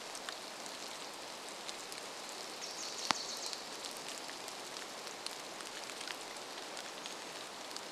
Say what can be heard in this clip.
rain, Wilson's Warbler song, Pacific-slope Flycatcher call